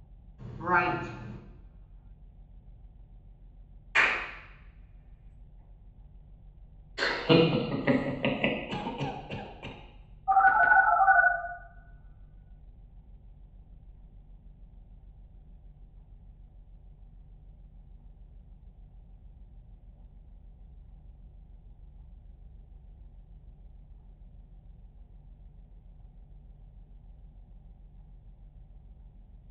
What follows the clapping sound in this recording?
laughter